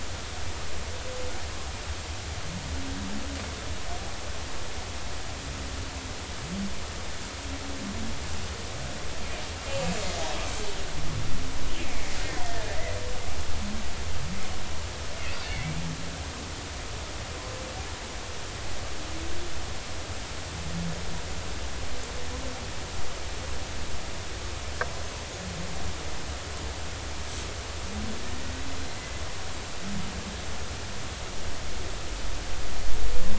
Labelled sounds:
12.4	12.8	killer whale, Bigg's (transient), 1.6 to 1.9 kHz
15.5	15.8	killer whale, Bigg's (transient), 2.0 to 2.3 kHz
28.3	28.6	killer whale, Bigg's (transient), 1.8 to 2.0 kHz

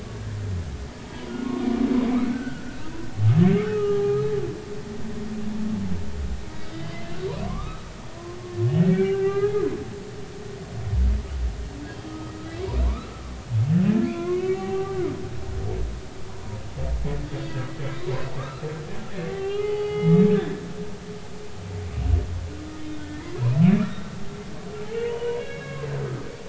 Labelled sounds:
2.2	2.8	humpback whale, 1.3 to 1.7 kHz
3.6	4.2	humpback whale, 0.80 to 1.4 kHz
6.7	7.9	humpback whale, 0.99 to 3.9 kHz
8.9	9.7	humpback whale, 0.80 to 2.6 kHz
12.1	12.3	humpback whale, 1.2 to 1.3 kHz
12.9	15.0	humpback whale, 0.80 to 3.5 kHz
16.3	16.6	humpback whale, 0.90 to 1.1 kHz
18.4	18.7	humpback whale, 1.1 to 1.4 kHz
19.3	20.6	humpback whale, 0.80 to 3.4 kHz
23.7	24.0	humpback whale, 1.1 to 1.9 kHz
24.9	25.9	humpback whale, 0.90 to 4.0 kHz

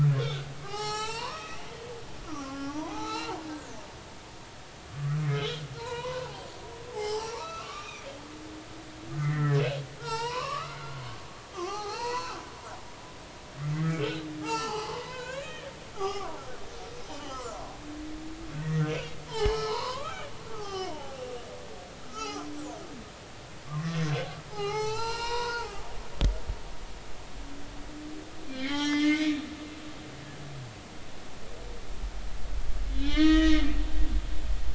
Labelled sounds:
0.2	3.3	humpback whale, 0.80 to 7.5 kHz
5.2	6.5	humpback whale, 0.80 to 5.9 kHz
6.9	8.1	humpback whale, 0.80 to 7.9 kHz
9.2	12.5	humpback whale, 0.80 to 8.0 kHz
13.7	15.7	humpback whale, 0.80 to 6.0 kHz
15.9	16.4	humpback whale, 0.80 to 5.4 kHz
17.1	17.4	humpback whale, 2.8 to 3.3 kHz
18.6	21.2	humpback whale, 0.80 to 5.6 kHz
22.1	22.5	humpback whale, 0.80 to 5.9 kHz
23.7	26.0	humpback whale, 0.80 to 8.0 kHz
28.5	30.0	humpback whale, 1.4 to 5.9 kHz
32.9	33.7	humpback whale, 1.1 to 5.7 kHz

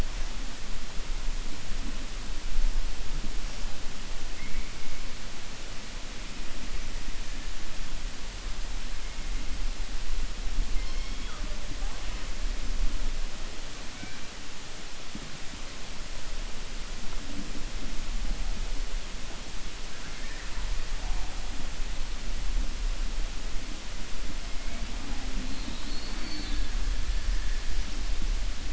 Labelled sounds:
19.9	20.6	killer whale, 0.95 to 2.5 kHz

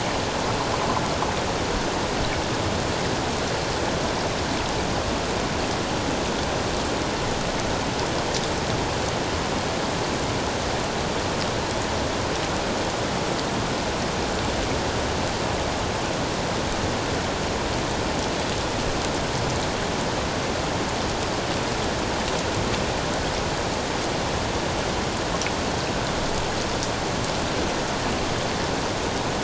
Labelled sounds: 1.0	1.3	vessel noise, 1.1 to 1.4 kHz

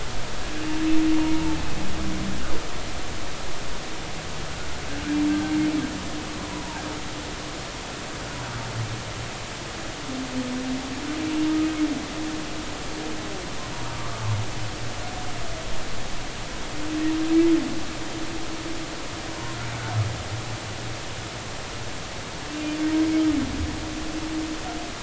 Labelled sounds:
6.4	6.8	humpback whale, 0.80 to 1.1 kHz
13.9	14.2	humpback whale, 0.99 to 1.2 kHz

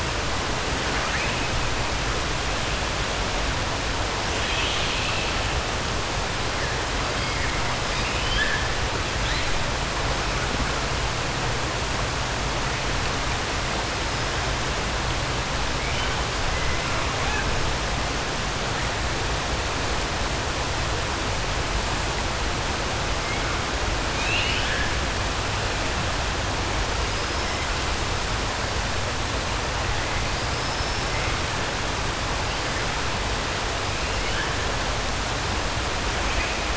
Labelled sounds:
7.8	8.6	killer whale, 1.6 to 5.2 kHz
24.1	24.9	killer whale, 1.5 to 5.2 kHz
30.5	31.0	killer whale, 5.1 to 5.4 kHz

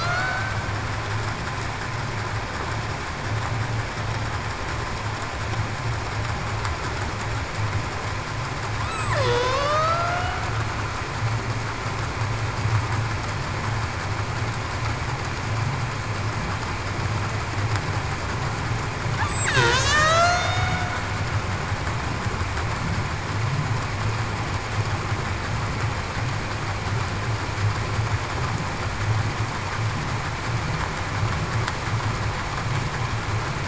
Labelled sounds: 0.0	0.4	killer whale, Bigg's (transient), 2.0 to 2.3 kHz
8.8	10.4	killer whale, Bigg's (transient), 0.45 to 8.0 kHz
19.5	20.8	killer whale, Bigg's (transient), 0.58 to 8.0 kHz

